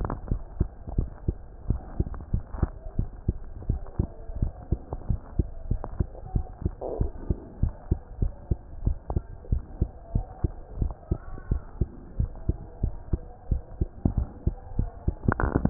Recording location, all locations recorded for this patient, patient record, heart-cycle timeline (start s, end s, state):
mitral valve (MV)
aortic valve (AV)+pulmonary valve (PV)+tricuspid valve (TV)+mitral valve (MV)
#Age: Child
#Sex: Male
#Height: 131.0 cm
#Weight: 23.7 kg
#Pregnancy status: False
#Murmur: Absent
#Murmur locations: nan
#Most audible location: nan
#Systolic murmur timing: nan
#Systolic murmur shape: nan
#Systolic murmur grading: nan
#Systolic murmur pitch: nan
#Systolic murmur quality: nan
#Diastolic murmur timing: nan
#Diastolic murmur shape: nan
#Diastolic murmur grading: nan
#Diastolic murmur pitch: nan
#Diastolic murmur quality: nan
#Outcome: Abnormal
#Campaign: 2015 screening campaign
0.00	0.88	unannotated
0.88	0.92	diastole
0.92	1.08	S1
1.08	1.24	systole
1.24	1.38	S2
1.38	1.66	diastole
1.66	1.80	S1
1.80	1.96	systole
1.96	2.08	S2
2.08	2.30	diastole
2.30	2.44	S1
2.44	2.60	systole
2.60	2.74	S2
2.74	2.94	diastole
2.94	3.10	S1
3.10	3.26	systole
3.26	3.40	S2
3.40	3.66	diastole
3.66	3.80	S1
3.80	3.96	systole
3.96	4.10	S2
4.10	4.36	diastole
4.36	4.52	S1
4.52	4.70	systole
4.70	4.80	S2
4.80	5.08	diastole
5.08	5.20	S1
5.20	5.36	systole
5.36	5.48	S2
5.48	5.68	diastole
5.68	5.82	S1
5.82	5.98	systole
5.98	6.08	S2
6.08	6.32	diastole
6.32	6.46	S1
6.46	6.66	systole
6.66	6.74	S2
6.74	6.98	diastole
6.98	7.12	S1
7.12	7.28	systole
7.28	7.38	S2
7.38	7.60	diastole
7.60	7.74	S1
7.74	7.88	systole
7.88	8.00	S2
8.00	8.17	diastole
8.17	8.34	S1
8.34	8.47	systole
8.47	8.60	S2
8.60	8.84	diastole
8.84	8.98	S1
8.98	9.12	systole
9.12	9.24	S2
9.24	9.48	diastole
9.48	9.64	S1
9.64	9.76	systole
9.76	9.90	S2
9.90	10.11	diastole
10.11	10.26	S1
10.26	10.41	systole
10.41	10.54	S2
10.54	10.76	diastole
10.76	10.94	S1
10.94	11.08	systole
11.08	11.22	S2
11.22	11.49	diastole
11.49	11.64	S1
11.64	11.78	systole
11.78	11.90	S2
11.90	12.16	diastole
12.16	12.32	S1
12.32	12.47	systole
12.47	12.59	S2
12.59	12.79	diastole
12.79	12.94	S1
12.94	13.10	systole
13.10	13.23	S2
13.23	13.47	diastole
13.47	13.64	S1
13.64	15.70	unannotated